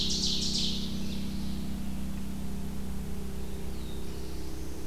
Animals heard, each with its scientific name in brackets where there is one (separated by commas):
Black-throated Blue Warbler (Setophaga caerulescens), Ovenbird (Seiurus aurocapilla)